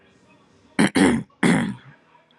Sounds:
Throat clearing